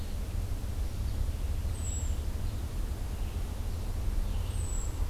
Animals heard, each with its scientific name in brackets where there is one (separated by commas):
Red-eyed Vireo (Vireo olivaceus), Hermit Thrush (Catharus guttatus)